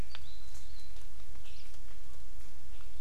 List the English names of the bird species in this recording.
Hawaii Amakihi